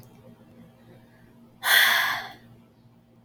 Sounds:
Sigh